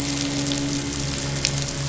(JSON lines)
{"label": "biophony, midshipman", "recorder": "SoundTrap 500"}